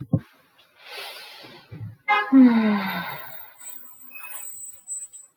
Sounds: Sigh